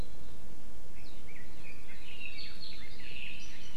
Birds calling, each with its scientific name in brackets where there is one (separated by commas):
Red-billed Leiothrix (Leiothrix lutea)